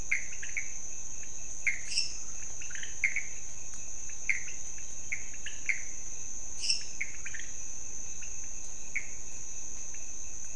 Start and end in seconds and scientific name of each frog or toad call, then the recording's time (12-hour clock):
0.0	9.2	Pithecopus azureus
0.0	10.5	Leptodactylus podicipinus
1.7	2.4	Dendropsophus minutus
6.4	7.3	Dendropsophus minutus
1:00am